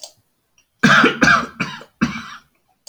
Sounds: Cough